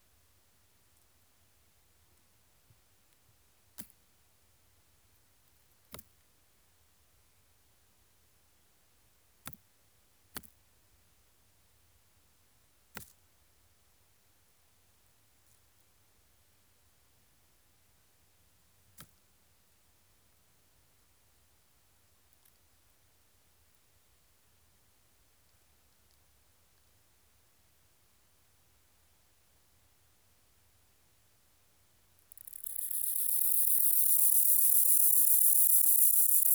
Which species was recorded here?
Gomphocerippus rufus